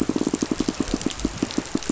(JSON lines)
{"label": "biophony, pulse", "recorder": "SoundTrap 500"}